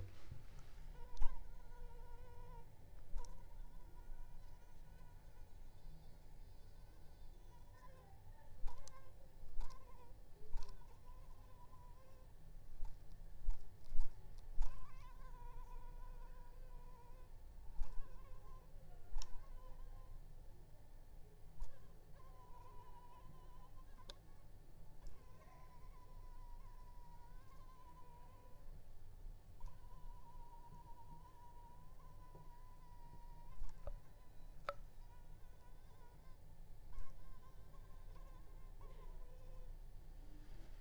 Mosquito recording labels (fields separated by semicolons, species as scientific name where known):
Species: Anopheles arabiensis; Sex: female; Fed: unfed; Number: one; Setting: cup